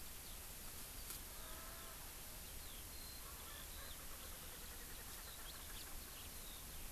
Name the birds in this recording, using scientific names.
Alauda arvensis, Pternistis erckelii